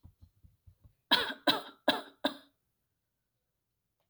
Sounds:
Cough